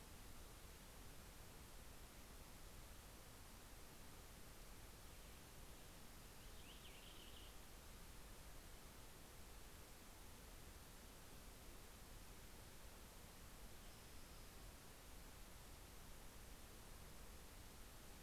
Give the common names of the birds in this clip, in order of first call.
Purple Finch, Spotted Towhee